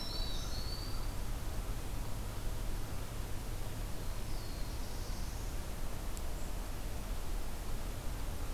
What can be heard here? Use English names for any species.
Black-throated Green Warbler, Black-throated Blue Warbler